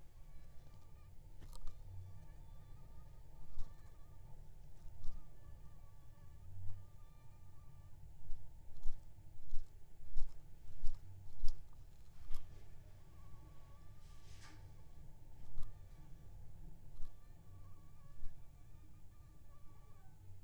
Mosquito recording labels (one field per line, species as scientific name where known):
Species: Aedes aegypti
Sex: female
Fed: unfed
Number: one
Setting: cup